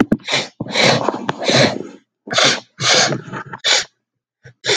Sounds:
Sniff